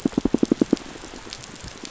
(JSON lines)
{"label": "biophony, pulse", "recorder": "SoundTrap 500"}